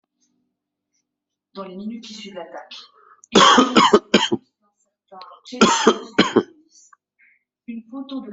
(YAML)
expert_labels:
- quality: good
  cough_type: dry
  dyspnea: false
  wheezing: false
  stridor: false
  choking: false
  congestion: true
  nothing: false
  diagnosis: upper respiratory tract infection
  severity: mild
age: 44
gender: male
respiratory_condition: false
fever_muscle_pain: false
status: COVID-19